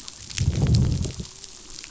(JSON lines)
{"label": "biophony, growl", "recorder": "SoundTrap 500"}